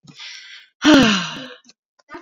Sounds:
Sigh